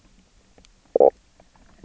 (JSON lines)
{"label": "biophony, knock croak", "recorder": "SoundTrap 300"}